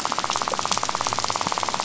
{"label": "biophony, rattle", "recorder": "SoundTrap 500"}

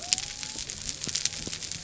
{"label": "biophony", "recorder": "SoundTrap 300"}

